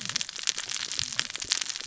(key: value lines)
label: biophony, cascading saw
recorder: SoundTrap 600 or HydroMoth